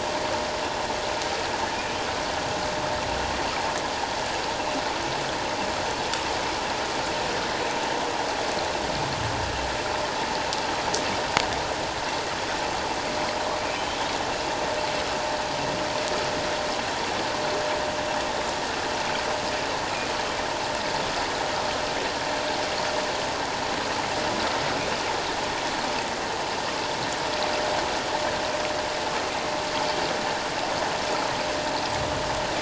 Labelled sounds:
13.7	14.0	humpback whale, 3.0 to 3.2 kHz

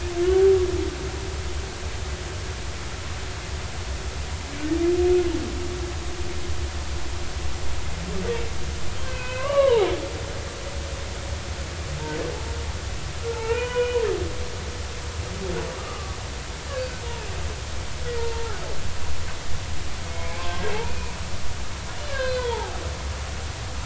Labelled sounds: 9.0	9.9	humpback whale, 0.80 to 3.2 kHz
13.3	14.0	humpback whale, 0.83 to 3.0 kHz
15.8	16.2	humpback whale, 1.1 to 1.3 kHz
18.2	18.5	humpback whale, 0.86 to 0.99 kHz
20.1	21.1	humpback whale, 1.0 to 2.6 kHz
22.1	22.8	humpback whale, 0.80 to 4.2 kHz

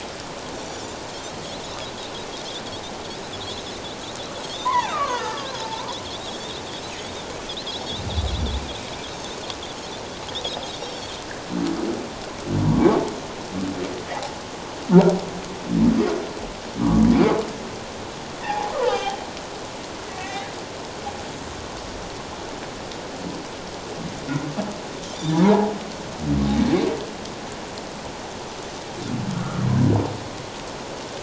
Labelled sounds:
0.6	0.9	Pacific white-sided dolphin, 5.7 to 6.1 kHz
4.4	5.6	Pacific white-sided dolphin, 0.94 to 3.9 kHz
4.6	5.5	humpback whale, 0.78 to 5.0 kHz
6.0	6.3	Pacific white-sided dolphin, 3.2 to 4.0 kHz
7.7	8.1	Pacific white-sided dolphin, 3.2 to 4.1 kHz
10.8	11.1	Pacific white-sided dolphin, 4.2 to 5.7 kHz
14.1	14.4	humpback whale, 0.78 to 1.0 kHz
16.8	17.1	humpback whale, 1.1 to 1.2 kHz
18.4	19.2	humpback whale, 0.78 to 3.3 kHz
20.1	20.5	humpback whale, 0.78 to 2.4 kHz
25.4	25.7	humpback whale, 0.78 to 1.0 kHz
29.4	29.7	humpback whale, 1.1 to 1.5 kHz

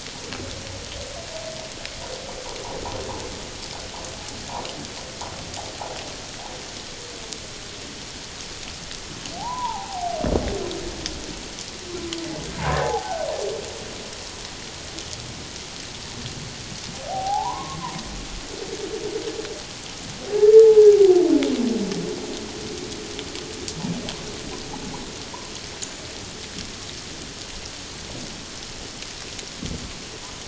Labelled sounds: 9.4	10.2	humpback whale, 0.78 to 1.1 kHz
12.6	13.2	humpback whale, 0.78 to 1.1 kHz
16.9	17.8	humpback whale, 0.78 to 1.2 kHz
20.3	20.7	humpback whale, 1.6 to 1.8 kHz

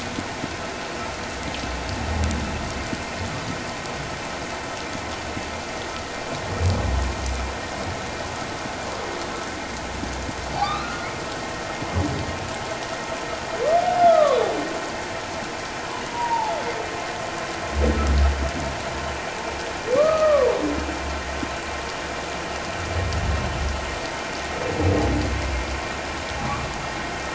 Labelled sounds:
10.6	11.1	humpback whale, 1.1 to 2.7 kHz
14.0	14.5	humpback whale, 1.0 to 1.5 kHz
16.1	16.5	humpback whale, 0.81 to 1.0 kHz
20.0	20.5	humpback whale, 0.91 to 1.3 kHz
26.4	26.7	humpback whale, 1.1 to 1.2 kHz

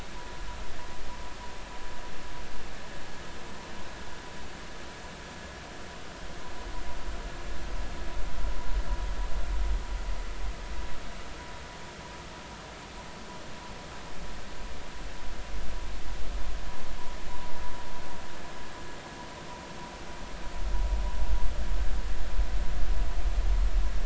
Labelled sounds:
17.3	17.6	vessel noise, 0.90 to 1.1 kHz

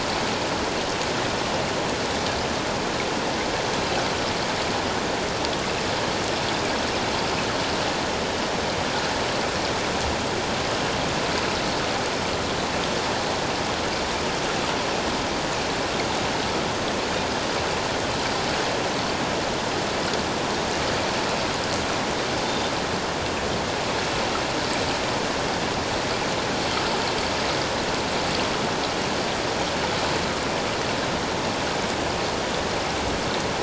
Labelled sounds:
22.4	22.7	Pacific white-sided dolphin, 3.5 to 3.7 kHz

